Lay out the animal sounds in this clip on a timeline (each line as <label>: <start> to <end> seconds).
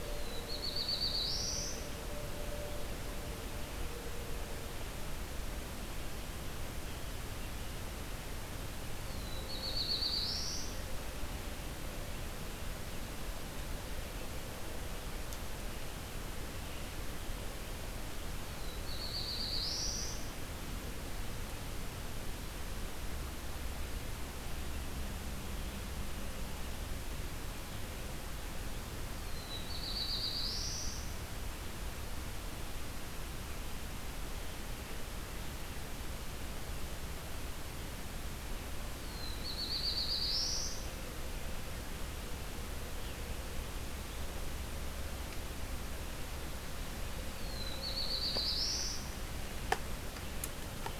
Black-throated Blue Warbler (Setophaga caerulescens): 0.0 to 2.0 seconds
Black-throated Blue Warbler (Setophaga caerulescens): 8.8 to 10.9 seconds
Black-throated Blue Warbler (Setophaga caerulescens): 18.3 to 20.4 seconds
Black-throated Blue Warbler (Setophaga caerulescens): 29.1 to 31.3 seconds
Black-throated Blue Warbler (Setophaga caerulescens): 38.8 to 41.0 seconds
Black-throated Blue Warbler (Setophaga caerulescens): 47.2 to 49.3 seconds